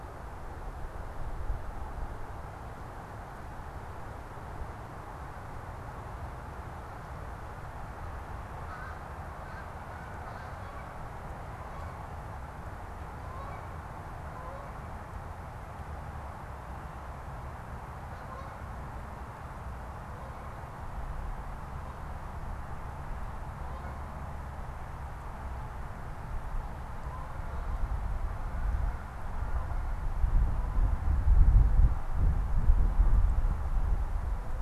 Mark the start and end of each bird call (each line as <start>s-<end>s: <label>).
8.4s-24.4s: Canada Goose (Branta canadensis)